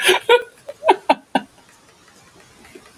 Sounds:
Laughter